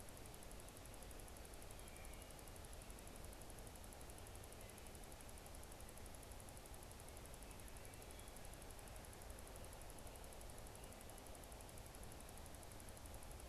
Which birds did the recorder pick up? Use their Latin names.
Hylocichla mustelina